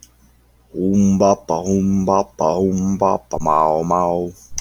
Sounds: Sigh